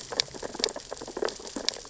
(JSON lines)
{"label": "biophony, sea urchins (Echinidae)", "recorder": "SoundTrap 600 or HydroMoth"}